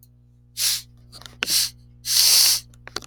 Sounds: Sniff